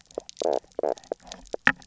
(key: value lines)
label: biophony, knock croak
recorder: SoundTrap 300